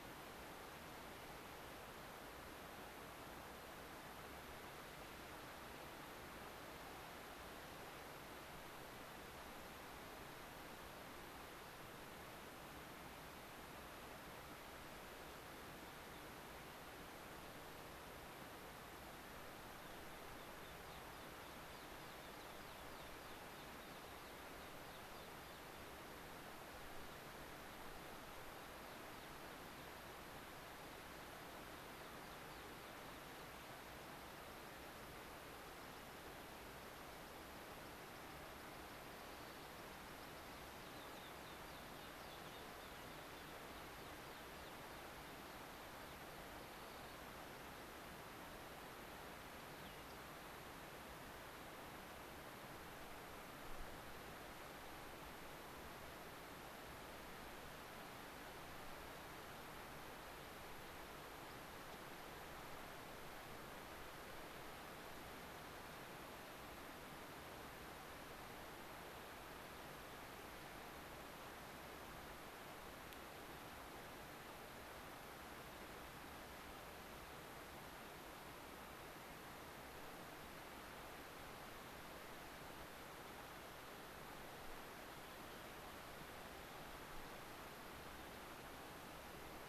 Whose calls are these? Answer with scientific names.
Anthus rubescens, Sialia currucoides